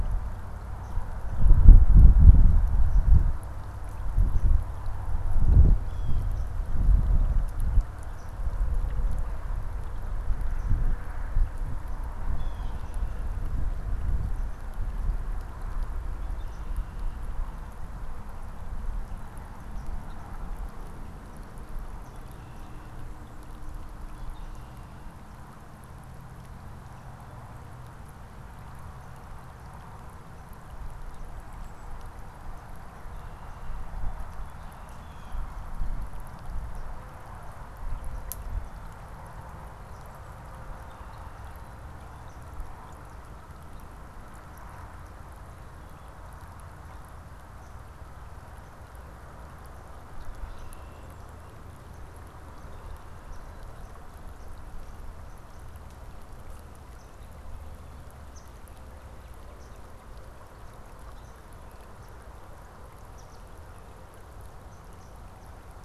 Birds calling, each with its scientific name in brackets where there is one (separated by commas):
Swamp Sparrow (Melospiza georgiana), Blue Jay (Cyanocitta cristata), Red-winged Blackbird (Agelaius phoeniceus)